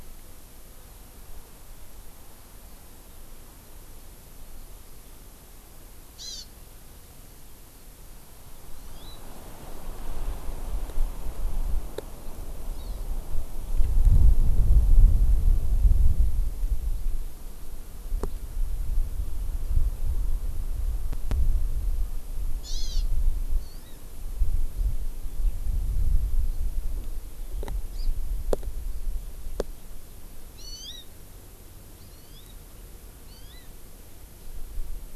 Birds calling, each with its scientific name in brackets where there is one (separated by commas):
Hawaii Amakihi (Chlorodrepanis virens)